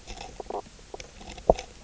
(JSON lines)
{"label": "biophony, knock croak", "recorder": "SoundTrap 300"}